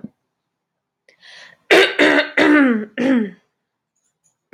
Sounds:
Throat clearing